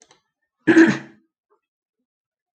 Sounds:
Throat clearing